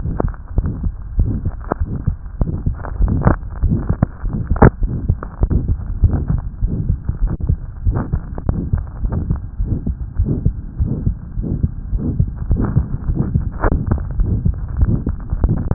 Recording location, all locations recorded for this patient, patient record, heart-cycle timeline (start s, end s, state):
aortic valve (AV)
aortic valve (AV)+pulmonary valve (PV)+tricuspid valve (TV)+mitral valve (MV)
#Age: Child
#Sex: Male
#Height: 111.0 cm
#Weight: 18.3 kg
#Pregnancy status: False
#Murmur: Present
#Murmur locations: aortic valve (AV)+mitral valve (MV)+pulmonary valve (PV)+tricuspid valve (TV)
#Most audible location: tricuspid valve (TV)
#Systolic murmur timing: Mid-systolic
#Systolic murmur shape: Diamond
#Systolic murmur grading: III/VI or higher
#Systolic murmur pitch: Medium
#Systolic murmur quality: Harsh
#Diastolic murmur timing: nan
#Diastolic murmur shape: nan
#Diastolic murmur grading: nan
#Diastolic murmur pitch: nan
#Diastolic murmur quality: nan
#Outcome: Abnormal
#Campaign: 2015 screening campaign
0.00	0.53	unannotated
0.53	0.66	S1
0.66	0.80	systole
0.80	0.92	S2
0.92	1.14	diastole
1.14	1.32	S1
1.32	1.43	systole
1.43	1.54	S2
1.54	1.77	diastole
1.77	1.92	S1
1.92	2.04	systole
2.04	2.16	S2
2.16	2.36	diastole
2.36	2.48	S1
2.48	2.64	systole
2.64	2.74	S2
2.74	2.96	diastole
2.96	3.12	S1
3.12	3.24	systole
3.24	3.38	S2
3.38	3.58	diastole
3.58	3.72	S1
3.72	3.86	systole
3.86	3.98	S2
3.98	4.20	diastole
4.20	4.33	S1
4.33	4.47	systole
4.47	4.60	S2
4.60	4.78	diastole
4.78	4.90	S1
4.90	5.04	systole
5.04	5.18	S2
5.18	5.38	diastole
5.38	5.51	S1
5.51	5.66	systole
5.66	5.78	S2
5.78	6.00	diastole
6.00	6.14	S1
6.14	6.26	systole
6.26	6.42	S2
6.42	6.58	diastole
6.58	6.72	S1
6.72	6.85	systole
6.85	7.00	S2
7.00	7.18	diastole
7.18	7.32	S1
7.32	7.46	systole
7.46	7.60	S2
7.60	7.82	diastole
7.82	7.96	S1
7.96	8.09	systole
8.09	8.24	S2
8.24	8.44	diastole
8.44	8.57	S1
8.57	8.69	systole
8.69	8.84	S2
8.84	8.99	diastole
8.99	9.12	S1
9.12	9.26	systole
9.26	9.40	S2
9.40	9.54	diastole
9.54	9.70	S1
9.70	15.74	unannotated